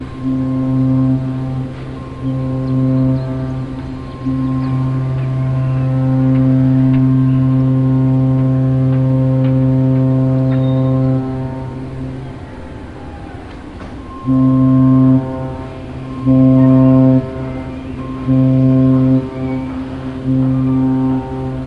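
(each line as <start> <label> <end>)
0.2 A loud, muffled, reverberating horn from a large ship sounds briefly. 4.2
4.2 A loud, muffled, and reverberating horn from a large ship sounds continuously. 12.5
12.5 Background noise of a harbor environment. 14.2
14.2 A loud, muffled horn from a large ship sounds briefly. 16.2
16.3 A loud, muffled, reverberating horn from a large ship sounds briefly. 21.7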